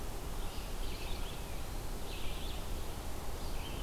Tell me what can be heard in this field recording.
Red-eyed Vireo